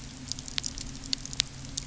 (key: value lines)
label: anthrophony, boat engine
recorder: SoundTrap 300